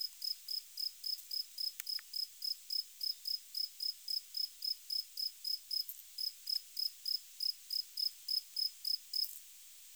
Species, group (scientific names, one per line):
Gryllus campestris
Orthoptera